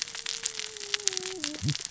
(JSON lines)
{"label": "biophony, cascading saw", "recorder": "SoundTrap 600 or HydroMoth"}